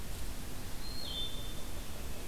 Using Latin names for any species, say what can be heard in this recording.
Hylocichla mustelina